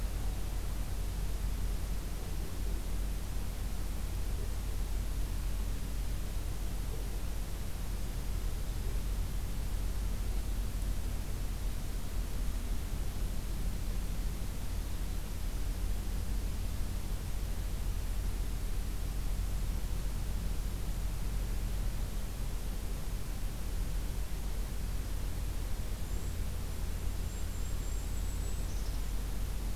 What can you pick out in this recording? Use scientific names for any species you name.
Regulus satrapa